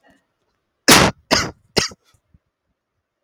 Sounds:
Cough